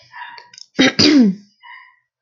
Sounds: Throat clearing